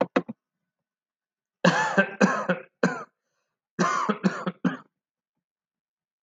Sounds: Cough